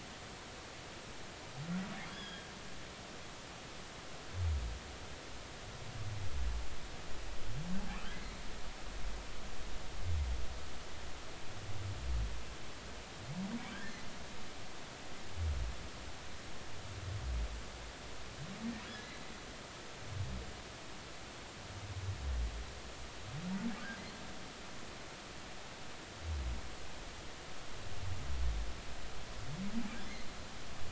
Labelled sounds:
2.0	2.5	humpback whale, 1.5 to 5.2 kHz
13.7	14.0	humpback whale, 1.5 to 1.9 kHz
18.9	19.2	humpback whale, 1.6 to 4.2 kHz
30.1	30.3	humpback whale, 4.0 to 4.3 kHz

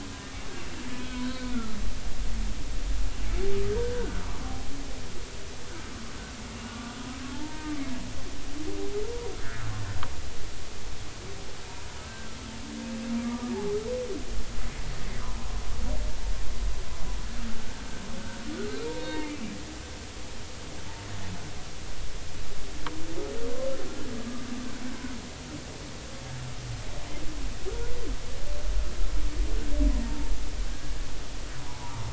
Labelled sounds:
0.9	1.2	humpback whale, 2.5 to 2.6 kHz
1.5	1.8	humpback whale, 1.3 to 1.5 kHz
3.7	4.2	humpback whale, 1.3 to 1.7 kHz
6.6	7.7	humpback whale, 0.83 to 1.9 kHz
12.0	12.3	humpback whale, 1.5 to 1.6 kHz
13.2	13.5	humpback whale, 1.1 to 1.3 kHz
18.9	19.4	humpback whale, 2.0 to 4.4 kHz
30.0	30.3	humpback whale, 0.86 to 0.96 kHz
31.6	32.1	humpback whale, 0.80 to 1.0 kHz

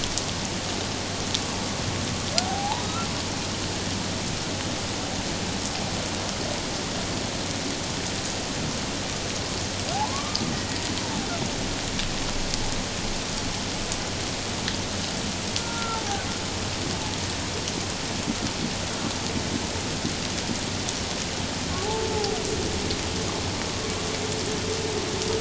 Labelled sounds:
2.4	3.1	humpback whale, 0.78 to 1.4 kHz
9.9	10.5	humpback whale, 0.78 to 1.2 kHz
15.6	16.0	humpback whale, 1.3 to 1.4 kHz
21.8	22.4	humpback whale, 0.78 to 0.94 kHz

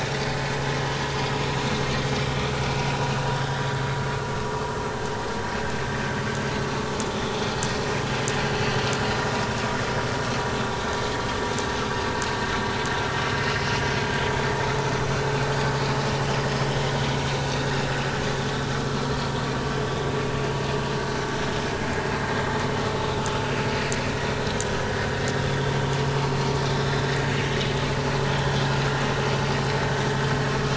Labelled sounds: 3.4	3.7	vessel noise, 1.5 to 2.0 kHz
7.1	7.4	vessel noise, 3.3 to 3.7 kHz
16.5	16.8	vessel noise, 5.1 to 5.4 kHz
26.7	27.0	vessel noise, 3.5 to 3.9 kHz

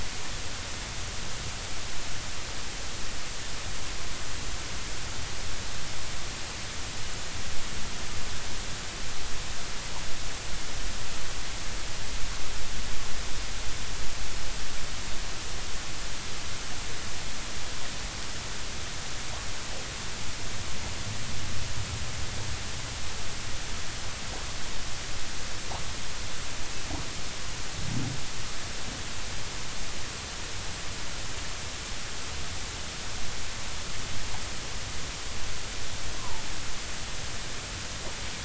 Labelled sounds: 36.2	36.4	humpback whale, 0.83 to 1.3 kHz

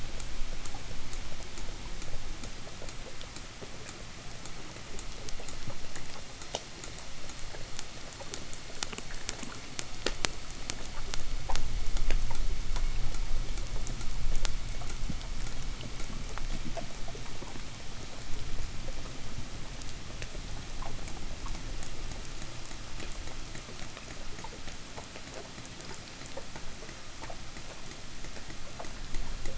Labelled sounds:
24.0	29.5	abiotic sound, 0 to 1.3 kHz

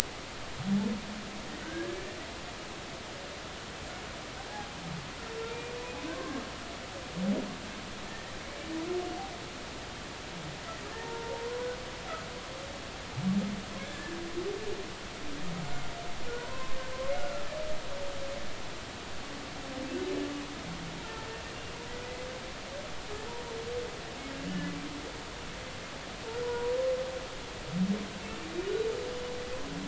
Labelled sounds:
1.6	2.0	humpback whale, 1.4 to 1.7 kHz
6.1	6.4	humpback whale, 0.99 to 1.2 kHz
8.1	8.3	humpback whale, 1.8 to 2.0 kHz
10.9	11.7	humpback whale, 0.86 to 1.1 kHz
13.8	14.2	humpback whale, 1.6 to 1.8 kHz
15.6	16.8	humpback whale, 0.93 to 7.2 kHz
26.4	26.7	humpback whale, 0.90 to 1.0 kHz

